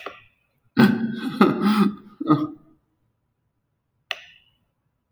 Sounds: Sigh